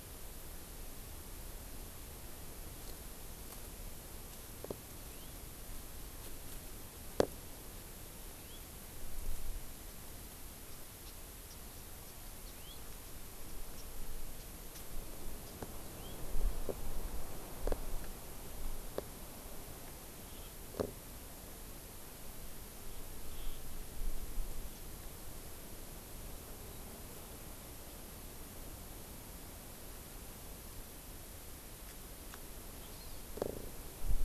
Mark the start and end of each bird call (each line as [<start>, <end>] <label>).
[5.00, 5.30] House Finch (Haemorhous mexicanus)
[8.30, 8.60] House Finch (Haemorhous mexicanus)
[10.70, 11.10] Japanese Bush Warbler (Horornis diphone)
[11.50, 11.60] Japanese Bush Warbler (Horornis diphone)
[12.40, 12.80] House Finch (Haemorhous mexicanus)
[13.70, 13.80] Japanese Bush Warbler (Horornis diphone)
[14.30, 14.80] Japanese Bush Warbler (Horornis diphone)
[15.40, 15.60] Japanese Bush Warbler (Horornis diphone)
[15.90, 16.20] House Finch (Haemorhous mexicanus)
[20.20, 20.50] Hawaiian Hawk (Buteo solitarius)
[23.30, 23.60] Hawaiian Hawk (Buteo solitarius)
[31.80, 32.00] Japanese Bush Warbler (Horornis diphone)
[32.80, 33.30] Hawaii Amakihi (Chlorodrepanis virens)